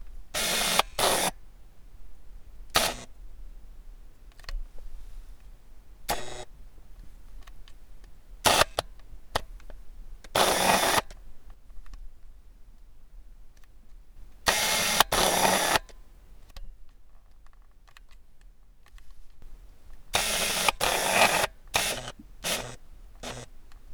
Is the radio out of range?
yes